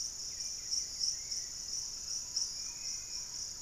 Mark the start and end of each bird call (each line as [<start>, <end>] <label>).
[0.00, 1.68] unidentified bird
[0.00, 3.62] Hauxwell's Thrush (Turdus hauxwelli)
[1.88, 3.62] Thrush-like Wren (Campylorhynchus turdinus)
[2.38, 3.38] Dusky-capped Flycatcher (Myiarchus tuberculifer)